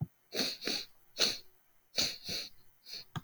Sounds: Sniff